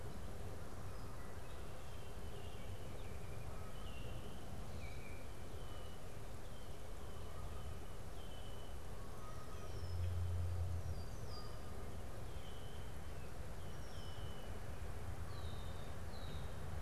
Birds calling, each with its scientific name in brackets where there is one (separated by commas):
Baltimore Oriole (Icterus galbula), Red-winged Blackbird (Agelaius phoeniceus)